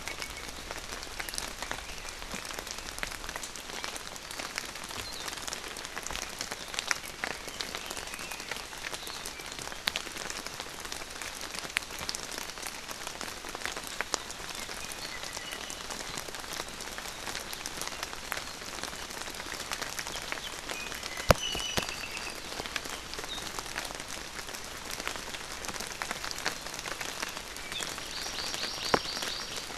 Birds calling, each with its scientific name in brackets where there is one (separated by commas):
Apapane (Himatione sanguinea), Iiwi (Drepanis coccinea), Hawaii Amakihi (Chlorodrepanis virens), Hawaii Akepa (Loxops coccineus)